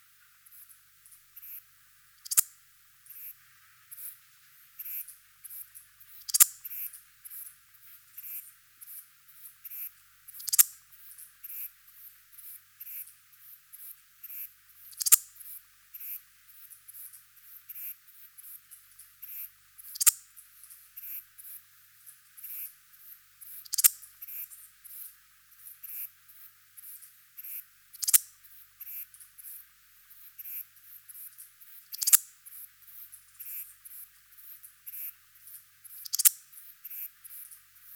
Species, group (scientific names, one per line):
Parasteropleurus perezii
Orthoptera